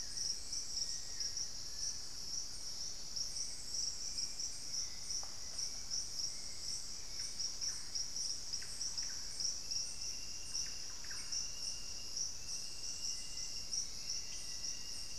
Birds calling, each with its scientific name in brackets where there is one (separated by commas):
Black-faced Antthrush (Formicarius analis), Hauxwell's Thrush (Turdus hauxwelli), unidentified bird, Thrush-like Wren (Campylorhynchus turdinus)